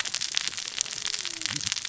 {"label": "biophony, cascading saw", "recorder": "SoundTrap 600 or HydroMoth"}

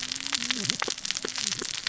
{"label": "biophony, cascading saw", "recorder": "SoundTrap 600 or HydroMoth"}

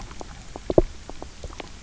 {"label": "biophony, knock", "recorder": "SoundTrap 300"}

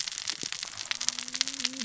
{"label": "biophony, cascading saw", "recorder": "SoundTrap 600 or HydroMoth"}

